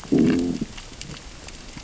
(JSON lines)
{"label": "biophony, growl", "recorder": "SoundTrap 600 or HydroMoth"}